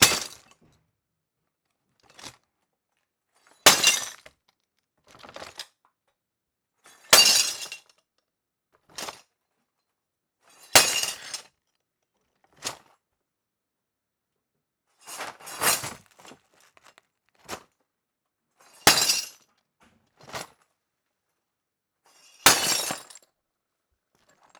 Is something hitting a piece of wood?
no